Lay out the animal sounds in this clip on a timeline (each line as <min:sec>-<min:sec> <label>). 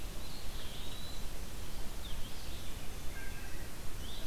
0:00.0-0:04.3 Red-eyed Vireo (Vireo olivaceus)
0:00.1-0:01.3 Eastern Wood-Pewee (Contopus virens)
0:03.0-0:03.8 Wood Thrush (Hylocichla mustelina)